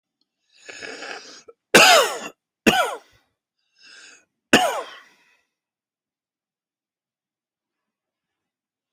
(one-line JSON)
{"expert_labels": [{"quality": "ok", "cough_type": "wet", "dyspnea": false, "wheezing": false, "stridor": false, "choking": false, "congestion": false, "nothing": true, "diagnosis": "COVID-19", "severity": "mild"}], "age": 37, "gender": "male", "respiratory_condition": true, "fever_muscle_pain": false, "status": "symptomatic"}